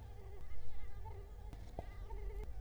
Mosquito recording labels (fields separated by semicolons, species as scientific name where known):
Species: Culex quinquefasciatus; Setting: cup